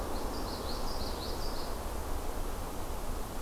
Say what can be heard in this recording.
Common Yellowthroat